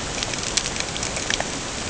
{"label": "ambient", "recorder": "HydroMoth"}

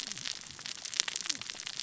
{"label": "biophony, cascading saw", "recorder": "SoundTrap 600 or HydroMoth"}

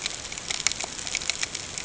{"label": "ambient", "recorder": "HydroMoth"}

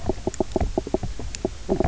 {"label": "biophony, knock croak", "recorder": "SoundTrap 300"}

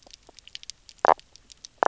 {"label": "biophony, knock croak", "recorder": "SoundTrap 300"}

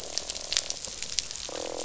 {"label": "biophony, croak", "recorder": "SoundTrap 500"}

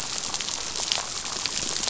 {"label": "biophony, damselfish", "recorder": "SoundTrap 500"}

